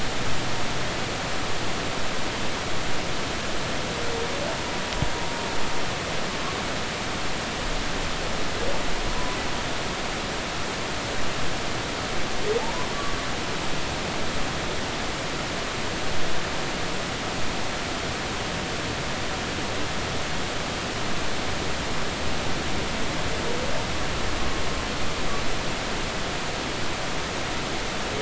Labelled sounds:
12.6	12.9	humpback whale, 0.80 to 1.1 kHz

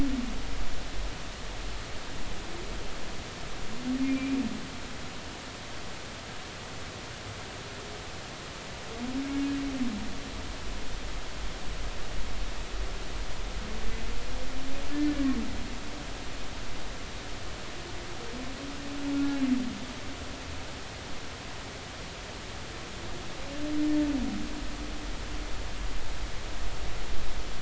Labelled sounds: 4.0	4.4	humpback whale, 2.3 to 2.5 kHz
14.9	15.3	humpback whale, 1.6 to 1.8 kHz
19.1	19.4	humpback whale, 1.3 to 1.4 kHz

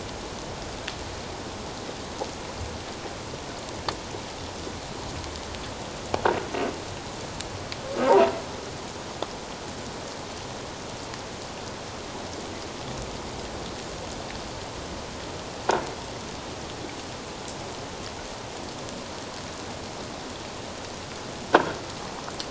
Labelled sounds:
21.5	21.8	croaking sound likely from a nearby submerged object, 1.4 to 1.7 kHz

